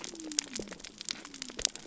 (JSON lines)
{"label": "biophony", "recorder": "SoundTrap 300"}